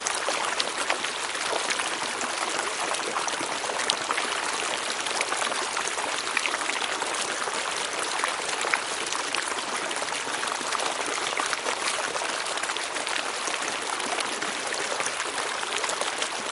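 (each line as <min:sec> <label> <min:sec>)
0:00.0 Water splashes swiftly over rocks like a fast mountain stream. 0:16.5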